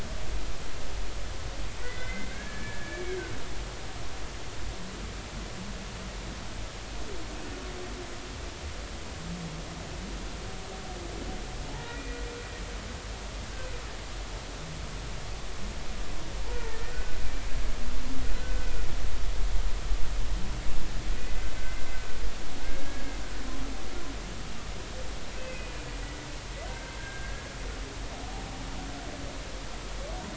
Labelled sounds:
1.8	3.2	humpback whale, 1.5 to 2.4 kHz
11.8	12.2	humpback whale, 1.8 to 2.5 kHz
16.5	17.2	humpback whale, 1.4 to 2.0 kHz
18.4	18.7	humpback whale, 1.4 to 1.6 kHz
21.2	21.5	humpback whale, 1.9 to 2.6 kHz
22.6	23.0	humpback whale, 1.5 to 1.7 kHz
25.4	27.4	humpback whale, 1.5 to 2.7 kHz

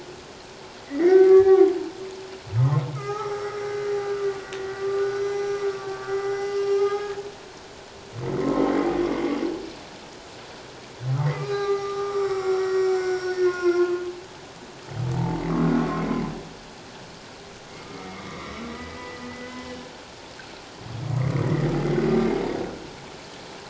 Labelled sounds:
0.9	1.7	humpback whale, 0.78 to 2.2 kHz
2.9	7.3	humpback whale, 1.1 to 6.2 kHz
11.2	14.0	humpback whale, 0.78 to 5.8 kHz
15.8	16.1	humpback whale, 1.0 to 1.1 kHz
17.7	19.7	humpback whale, 1.0 to 2.3 kHz

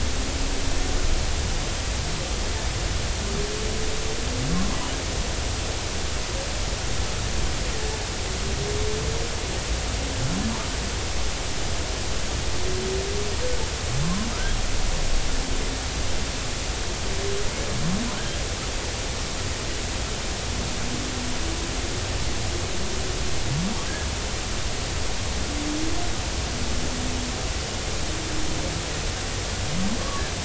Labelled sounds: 18.2	18.4	humpback whale, 1.5 to 1.7 kHz
30.0	30.2	humpback whale, 1.1 to 1.2 kHz

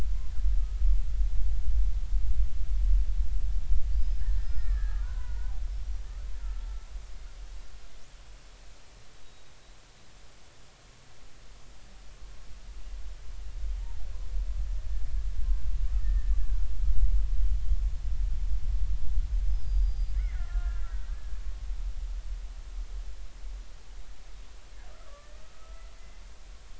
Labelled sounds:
3.9	5.5	killer whale, Bigg's (transient), 0.90 to 5.2 kHz
9.2	9.5	killer whale, Bigg's (transient), 3.7 to 3.9 kHz
13.8	14.0	killer whale, Bigg's (transient), 0.80 to 0.99 kHz
15.4	16.4	killer whale, Bigg's (transient), 1.5 to 1.9 kHz
19.5	21.4	killer whale, Bigg's (transient), 1.3 to 5.2 kHz
25.4	25.9	killer whale, Bigg's (transient), 1.2 to 1.4 kHz

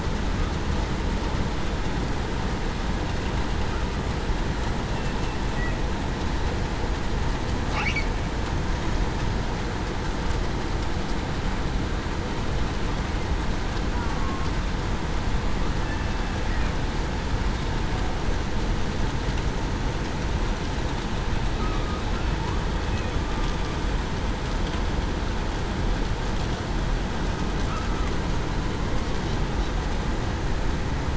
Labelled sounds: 14.0	14.5	killer whale, southern resident, 1.1 to 1.2 kHz
15.8	16.2	killer whale, southern resident, 2.6 to 2.7 kHz

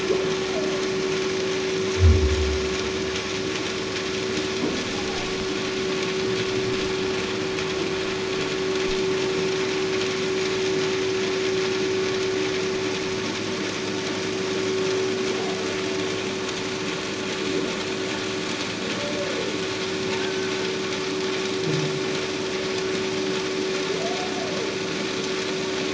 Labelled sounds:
20.2	20.5	humpback whale, 1.5 to 1.7 kHz

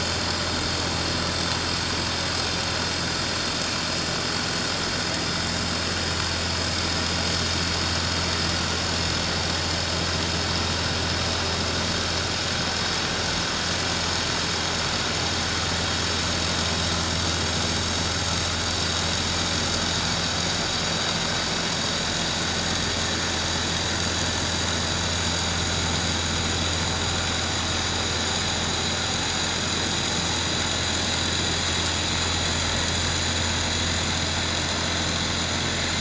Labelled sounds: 18.5	18.8	vessel noise, 6.8 to 6.9 kHz

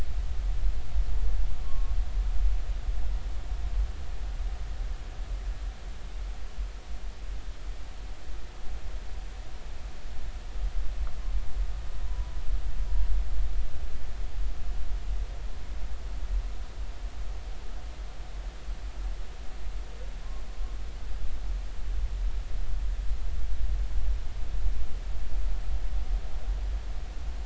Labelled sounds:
1.6	1.9	humpback whale, 1.0 to 1.2 kHz
12.1	12.3	humpback whale, 0.93 to 1.0 kHz

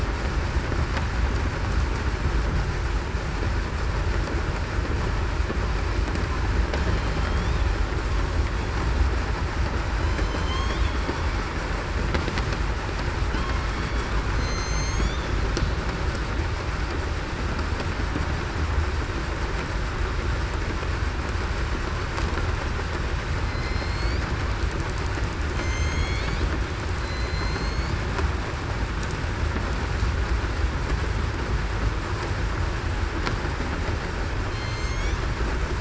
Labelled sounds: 7.2	7.6	killer whale, southern resident, 3.1 to 3.8 kHz
10.1	10.5	killer whale, southern resident, 6.1 to 6.2 kHz
13.8	15.1	killer whale, southern resident, 2.0 to 8.0 kHz
23.4	24.2	killer whale, southern resident, 2.1 to 5.3 kHz
25.5	26.2	killer whale, southern resident, 2.1 to 6.7 kHz
27.0	27.9	killer whale, southern resident, 4.0 to 6.7 kHz
34.5	34.9	killer whale, southern resident, 3.1 to 3.2 kHz

